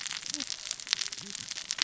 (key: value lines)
label: biophony, cascading saw
recorder: SoundTrap 600 or HydroMoth